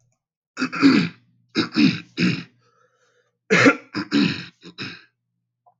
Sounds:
Throat clearing